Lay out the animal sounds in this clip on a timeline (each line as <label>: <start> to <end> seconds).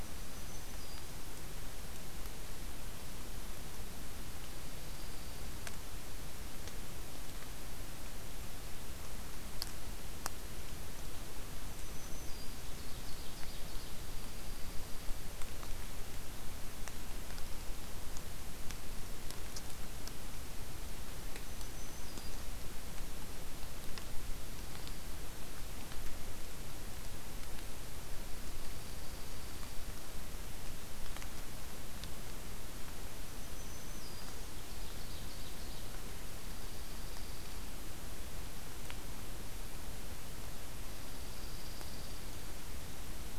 Black-throated Green Warbler (Setophaga virens): 0.0 to 1.2 seconds
Dark-eyed Junco (Junco hyemalis): 4.5 to 5.8 seconds
Black-throated Green Warbler (Setophaga virens): 11.7 to 12.5 seconds
Ovenbird (Seiurus aurocapilla): 12.5 to 14.0 seconds
Dark-eyed Junco (Junco hyemalis): 13.9 to 15.2 seconds
Black-throated Green Warbler (Setophaga virens): 21.3 to 22.5 seconds
Dark-eyed Junco (Junco hyemalis): 28.5 to 29.9 seconds
Black-throated Green Warbler (Setophaga virens): 33.2 to 34.5 seconds
Ovenbird (Seiurus aurocapilla): 34.5 to 35.9 seconds
Dark-eyed Junco (Junco hyemalis): 36.4 to 37.8 seconds
Dark-eyed Junco (Junco hyemalis): 40.8 to 42.3 seconds